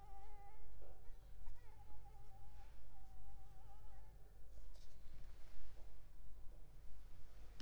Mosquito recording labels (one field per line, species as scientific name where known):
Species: Anopheles arabiensis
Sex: female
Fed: unfed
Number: one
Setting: cup